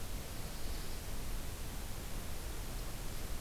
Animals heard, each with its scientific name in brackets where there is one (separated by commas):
Black-throated Blue Warbler (Setophaga caerulescens)